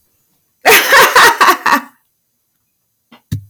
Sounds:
Laughter